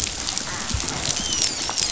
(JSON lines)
{"label": "biophony, dolphin", "recorder": "SoundTrap 500"}